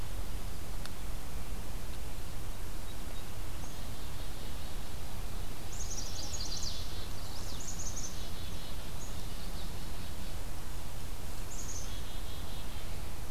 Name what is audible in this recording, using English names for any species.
Black-capped Chickadee, Chestnut-sided Warbler